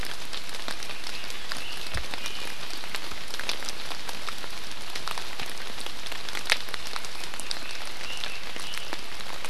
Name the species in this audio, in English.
Red-billed Leiothrix